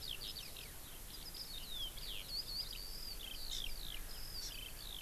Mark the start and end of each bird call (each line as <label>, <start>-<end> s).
Eurasian Skylark (Alauda arvensis), 0.0-5.0 s
Hawaii Amakihi (Chlorodrepanis virens), 3.5-3.7 s
Hawaii Amakihi (Chlorodrepanis virens), 4.4-4.6 s